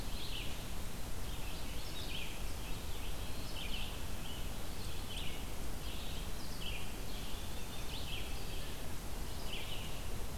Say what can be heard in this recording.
Red-eyed Vireo